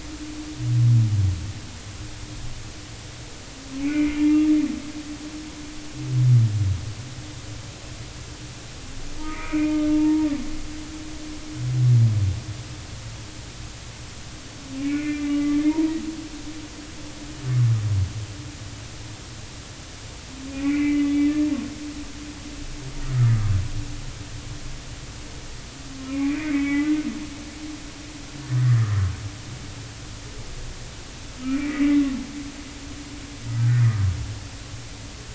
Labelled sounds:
3.8	4.2	humpback whale, 2.0 to 2.7 kHz
9.2	10.3	humpback whale, 0.86 to 2.6 kHz
14.8	15.9	humpback whale, 0.86 to 2.6 kHz
20.5	21.2	humpback whale, 1.9 to 2.6 kHz
23.1	23.5	humpback whale, 1.1 to 1.4 kHz
26.0	26.9	humpback whale, 0.99 to 2.6 kHz
28.6	29.0	humpback whale, 1.7 to 2.0 kHz
31.4	32.0	humpback whale, 1.9 to 2.5 kHz
33.6	33.8	humpback whale, 1.4 to 1.7 kHz

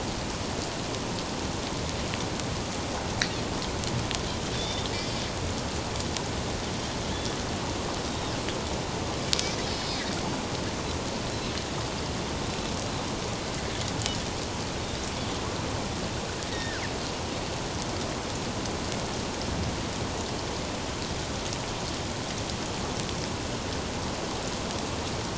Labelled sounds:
4.6	5.2	Pacific white-sided dolphin, 3.4 to 4.6 kHz
8.1	8.3	Pacific white-sided dolphin, 3.6 to 3.8 kHz
9.7	10.0	Pacific white-sided dolphin, 3.7 to 5.2 kHz
16.5	16.8	Pacific white-sided dolphin, 1.3 to 3.8 kHz

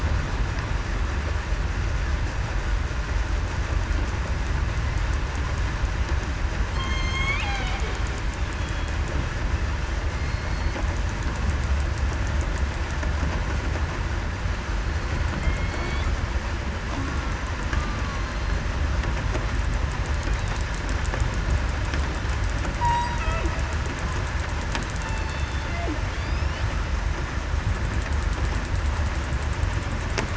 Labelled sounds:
6.7	7.8	killer whale, southern resident, 0.73 to 6.6 kHz
8.6	8.9	killer whale, southern resident, 3.3 to 3.4 kHz
10.2	10.7	killer whale, southern resident, 4.2 to 4.4 kHz
14.7	15.7	killer whale, southern resident, 3.1 to 4.4 kHz
18.1	18.6	killer whale, southern resident, 4.2 to 4.3 kHz
22.8	23.1	killer whale, southern resident, 1.9 to 2.0 kHz
25.2	25.6	killer whale, southern resident, 3.5 to 3.6 kHz
26.2	26.5	killer whale, southern resident, 4.6 to 5.6 kHz

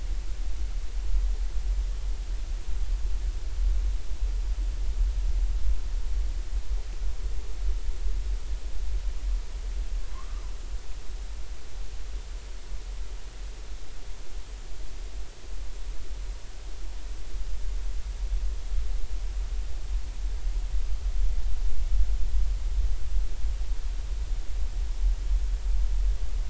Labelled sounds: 10.1	10.4	humpback whale, 0.96 to 1.3 kHz

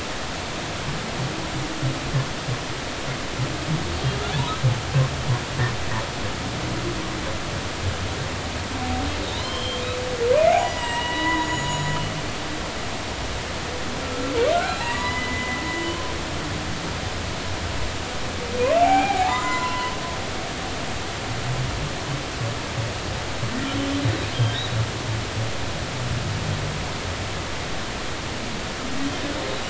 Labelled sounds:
9.2	9.8	humpback whale, 0.86 to 4.2 kHz
10.6	12.0	humpback whale, 0.90 to 7.8 kHz
14.0	15.6	humpback whale, 0.80 to 4.1 kHz
18.8	19.9	humpback whale, 0.80 to 2.5 kHz

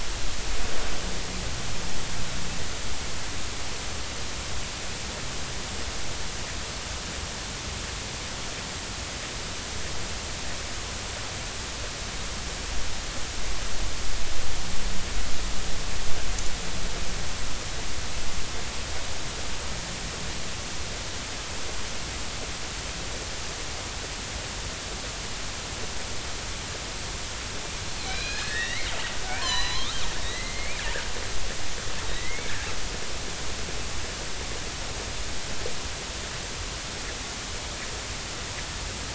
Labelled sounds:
28.0	28.9	killer whale, northern resident, 1.5 to 5.8 kHz
29.4	30.0	killer whale, northern resident, 0.93 to 6.3 kHz
30.2	30.8	killer whale, northern resident, 1.9 to 4.2 kHz
32.1	32.5	killer whale, northern resident, 1.8 to 2.3 kHz

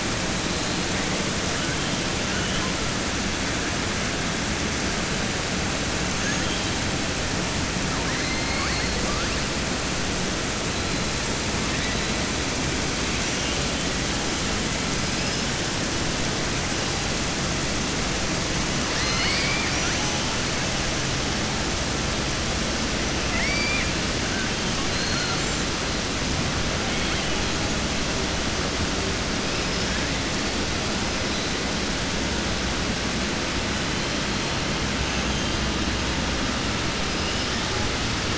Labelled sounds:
8.0	8.9	killer whale, southern resident, 0.93 to 2.3 kHz
18.9	20.0	killer whale, southern resident, 1.1 to 5.6 kHz
23.2	23.9	killer whale, southern resident, 1.8 to 2.7 kHz
24.9	25.4	killer whale, southern resident, 0.75 to 4.5 kHz

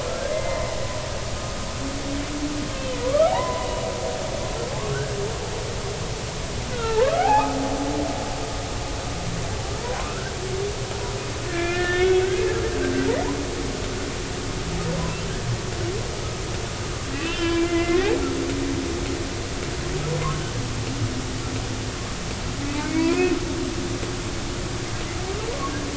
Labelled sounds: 0.3	0.6	humpback whale, 2.0 to 2.1 kHz
2.8	4.3	humpback whale, 0.80 to 3.0 kHz
6.7	7.5	humpback whale, 0.80 to 1.8 kHz
9.8	10.3	humpback whale, 0.93 to 1.6 kHz
11.5	12.3	humpback whale, 1.3 to 3.6 kHz
17.1	18.1	humpback whale, 0.96 to 3.2 kHz
22.8	23.4	humpback whale, 2.1 to 2.6 kHz

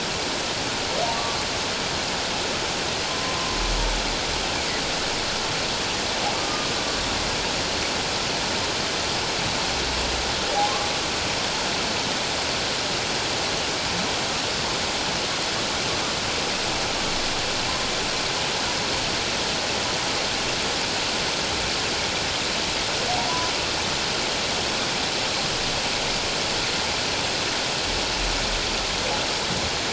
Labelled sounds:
1.1	1.4	humpback whale, 1.0 to 1.2 kHz
3.1	3.4	humpback whale, 0.97 to 1.1 kHz
6.4	6.7	humpback whale, 1.1 to 1.3 kHz

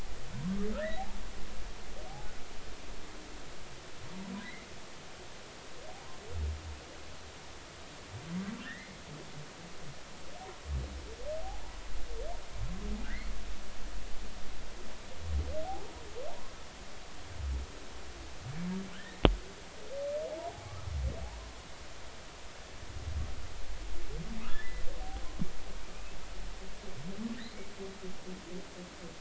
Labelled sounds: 0.8	1.0	humpback whale, 1.6 to 2.1 kHz
4.4	4.7	humpback whale, 1.9 to 2.2 kHz
8.6	9.0	humpback whale, 1.6 to 2.2 kHz
13.0	13.3	humpback whale, 1.4 to 2.2 kHz
18.9	19.2	humpback whale, 1.4 to 2.0 kHz
20.5	20.7	humpback whale, 0.80 to 0.86 kHz
24.5	24.8	humpback whale, 1.6 to 2.0 kHz

